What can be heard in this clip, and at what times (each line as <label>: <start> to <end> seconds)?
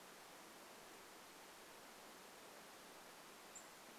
unidentified bird chip note: 2 to 4 seconds